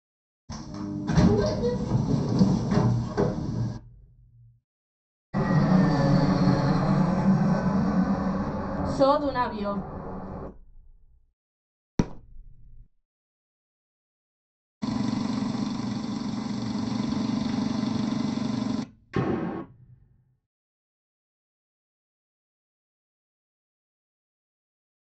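At 0.48 seconds, the sound of a sliding door plays. Then, at 5.33 seconds, a fixed-wing aircraft can be heard. After that, at 11.97 seconds, you can hear fireworks. Next, at 14.81 seconds, there is an engine. Following that, at 19.11 seconds, gunfire is heard.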